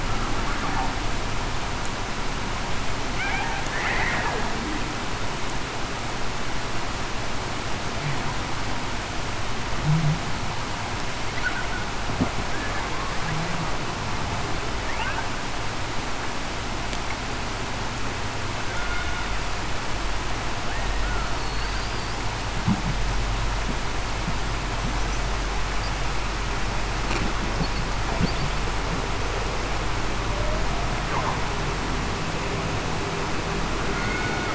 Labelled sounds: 21.4	21.9	killer whale, Bigg's (transient), 4.3 to 4.8 kHz
30.3	30.7	humpback whale, 0.56 to 0.66 kHz
34.1	34.5	killer whale, Bigg's (transient), 1.4 to 1.5 kHz

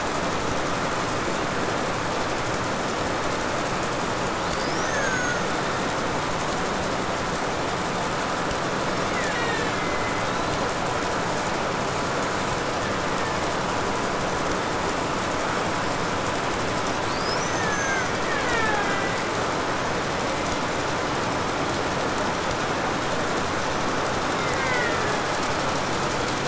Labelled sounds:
4.3	6.3	killer whale, Bigg's (transient), 0.42 to 8.0 kHz
8.7	10.8	killer whale, Bigg's (transient), 0.92 to 7.9 kHz
10.9	12.8	killer whale, 5.7 to 8.0 kHz
12.4	13.8	killer whale, Bigg's (transient), 1.1 to 2.8 kHz
16.8	19.5	killer whale, Bigg's (transient), 0.17 to 6.7 kHz
24.3	25.7	killer whale, Bigg's (transient), 0.20 to 5.1 kHz

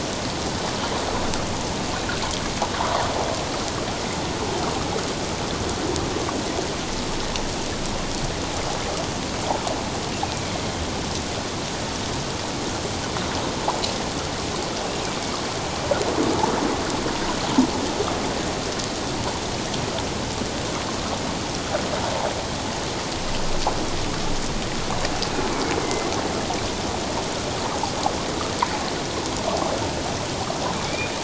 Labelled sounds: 10.2	10.5	killer whale, northern resident, A clan, AA subclan, 2.2 to 2.6 kHz
25.8	26.1	killer whale, northern resident, A clan, AA subclan, 2.0 to 2.2 kHz
30.8	31.1	killer whale, northern resident, A clan, AA subclan, 2.2 to 2.5 kHz

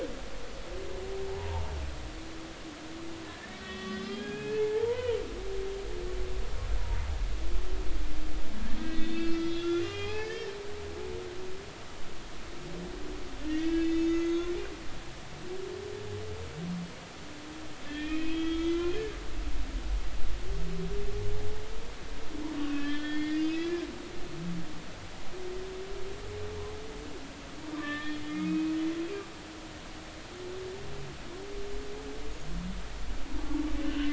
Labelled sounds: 1.3	1.6	humpback whale, 0.80 to 0.99 kHz
3.2	5.2	humpback whale, 0.83 to 3.5 kHz
8.8	10.5	humpback whale, 0.80 to 5.1 kHz
13.5	14.5	humpback whale, 1.3 to 6.7 kHz
15.1	15.5	humpback whale, 6.3 to 6.7 kHz
17.9	19.0	humpback whale, 1.2 to 3.7 kHz
22.6	23.9	humpback whale, 1.4 to 5.2 kHz
27.7	28.7	humpback whale, 1.1 to 3.8 kHz
33.8	34.1	humpback whale, 2.6 to 3.1 kHz

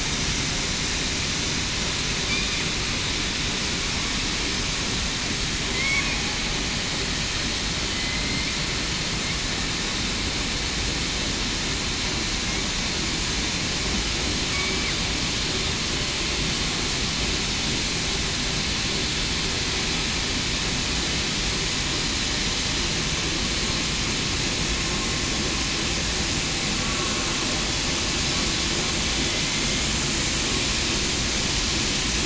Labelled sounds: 5.7	6.0	killer whale, southern resident, 2.0 to 2.3 kHz
7.9	8.5	killer whale, southern resident, 2.0 to 4.2 kHz

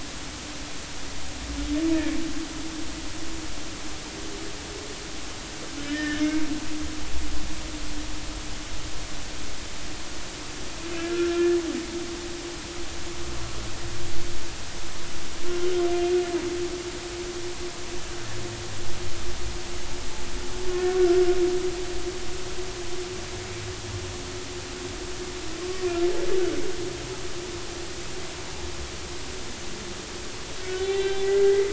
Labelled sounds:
5.8	6.5	humpback whale, 1.6 to 3.1 kHz
11.1	11.5	humpback whale, 1.3 to 1.4 kHz
30.6	31.7	humpback whale, 0.80 to 4.0 kHz

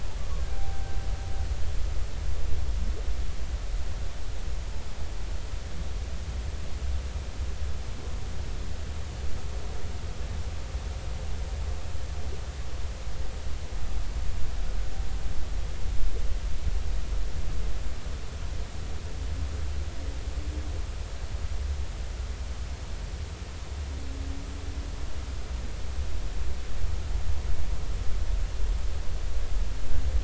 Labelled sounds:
0.5	0.9	humpback whale, 0.80 to 0.83 kHz

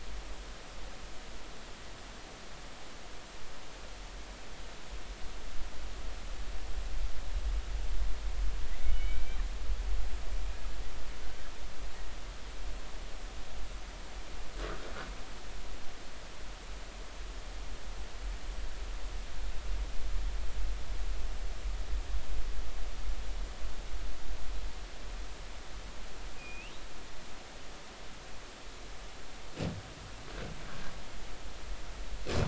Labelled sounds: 8.8	9.4	killer whale, Bigg's (transient), 2.1 to 3.1 kHz
26.4	26.7	killer whale, Bigg's (transient), 2.4 to 3.1 kHz

